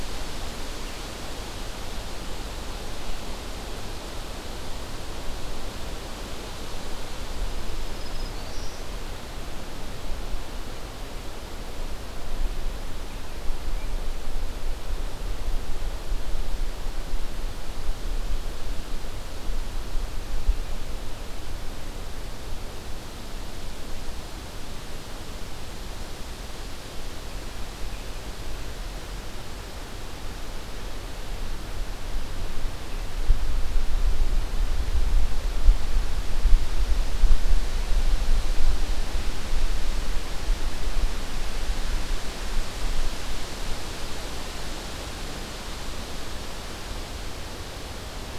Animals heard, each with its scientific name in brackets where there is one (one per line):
Black-throated Green Warbler (Setophaga virens)